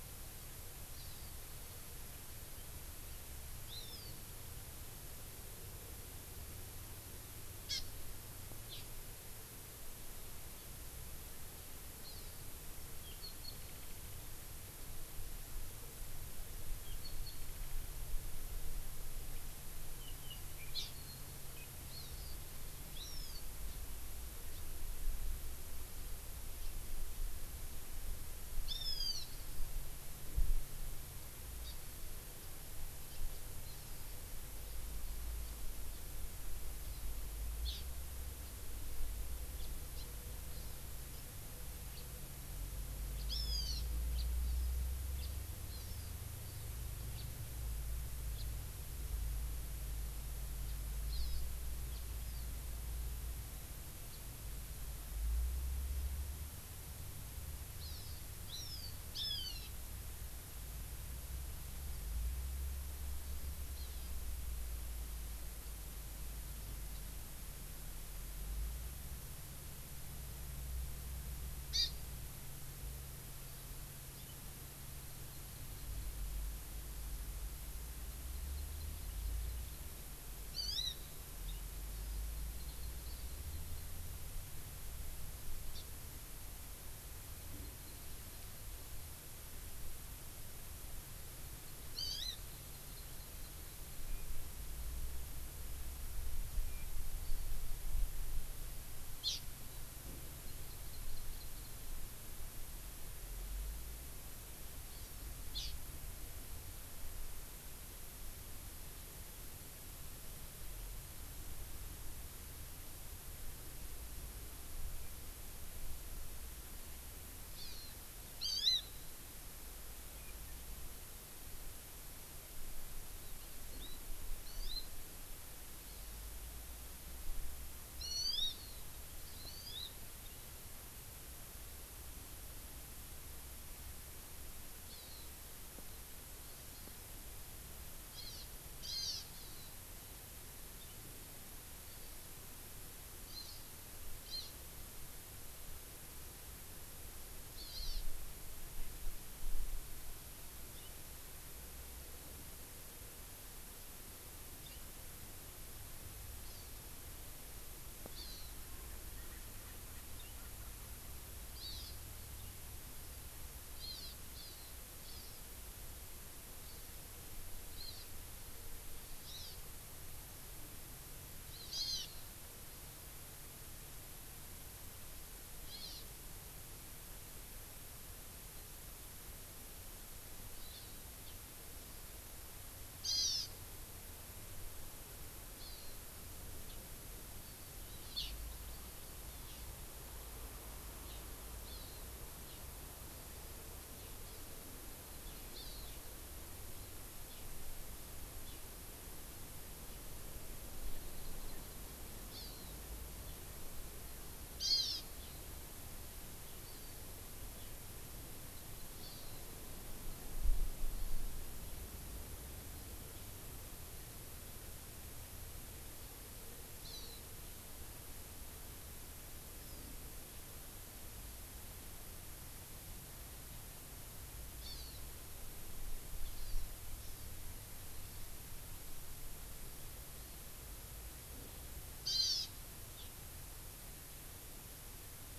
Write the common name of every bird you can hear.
Hawaii Amakihi, Hawaiian Hawk, House Finch, Erckel's Francolin